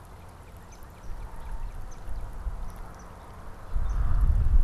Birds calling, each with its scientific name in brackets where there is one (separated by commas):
Swamp Sparrow (Melospiza georgiana), Northern Cardinal (Cardinalis cardinalis)